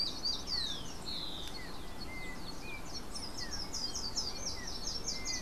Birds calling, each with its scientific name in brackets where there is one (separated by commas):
Slate-throated Redstart (Myioborus miniatus), Yellow-backed Oriole (Icterus chrysater), Rufous-collared Sparrow (Zonotrichia capensis)